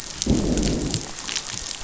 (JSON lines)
{"label": "biophony, growl", "recorder": "SoundTrap 500"}